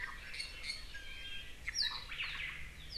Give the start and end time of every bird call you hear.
0.8s-1.5s: Iiwi (Drepanis coccinea)
2.0s-2.6s: Omao (Myadestes obscurus)

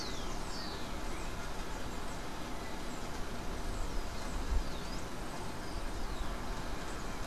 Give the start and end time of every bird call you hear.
0.0s-1.2s: Rufous-collared Sparrow (Zonotrichia capensis)
3.5s-7.3s: Rufous-collared Sparrow (Zonotrichia capensis)
5.1s-6.1s: Yellow-faced Grassquit (Tiaris olivaceus)

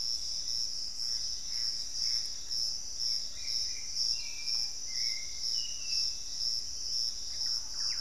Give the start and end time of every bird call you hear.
0.0s-3.0s: Gray Antbird (Cercomacra cinerascens)
0.0s-5.6s: Screaming Piha (Lipaugus vociferans)
0.0s-6.5s: Hauxwell's Thrush (Turdus hauxwelli)
0.0s-8.0s: Piratic Flycatcher (Legatus leucophaius)
7.0s-8.0s: Thrush-like Wren (Campylorhynchus turdinus)

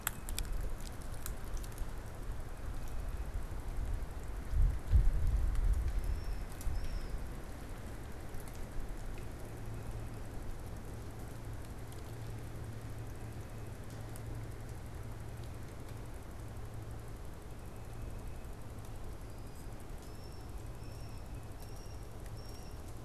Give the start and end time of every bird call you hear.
0.0s-1.2s: Tufted Titmouse (Baeolophus bicolor)
2.2s-3.6s: Tufted Titmouse (Baeolophus bicolor)
5.8s-7.3s: unidentified bird
18.8s-23.0s: unidentified bird

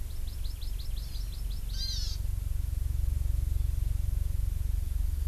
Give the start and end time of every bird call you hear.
0.0s-2.2s: Hawaii Amakihi (Chlorodrepanis virens)

